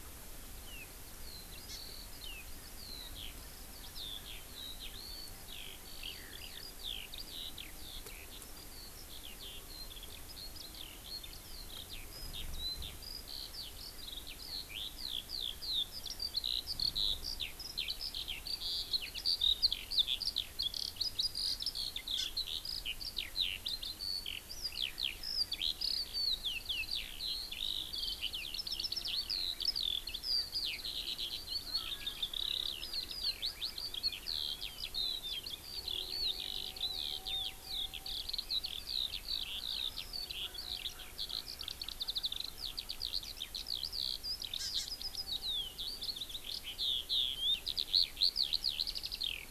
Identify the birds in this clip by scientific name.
Alauda arvensis, Chlorodrepanis virens, Pternistis erckelii